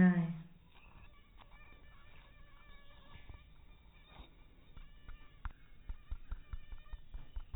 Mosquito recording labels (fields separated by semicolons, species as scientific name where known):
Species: mosquito; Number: one; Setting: cup